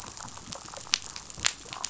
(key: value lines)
label: biophony, damselfish
recorder: SoundTrap 500